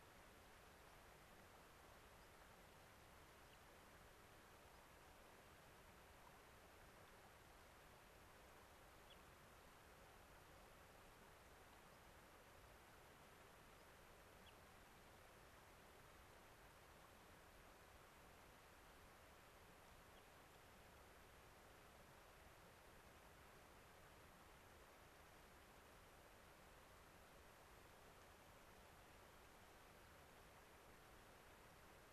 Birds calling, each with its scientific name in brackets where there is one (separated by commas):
White-crowned Sparrow (Zonotrichia leucophrys)